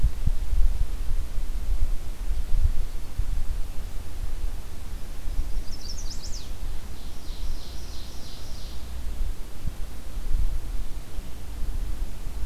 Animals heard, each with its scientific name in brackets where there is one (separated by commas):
Ovenbird (Seiurus aurocapilla), Chestnut-sided Warbler (Setophaga pensylvanica)